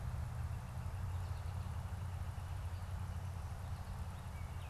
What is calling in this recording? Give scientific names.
Colaptes auratus, Icterus galbula